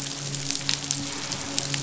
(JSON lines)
{"label": "biophony, midshipman", "recorder": "SoundTrap 500"}